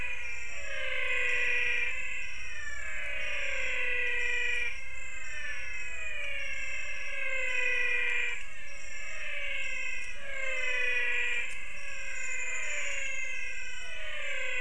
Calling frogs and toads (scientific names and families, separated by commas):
Leptodactylus podicipinus (Leptodactylidae), Physalaemus albonotatus (Leptodactylidae)